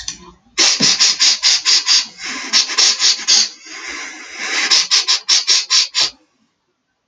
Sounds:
Sniff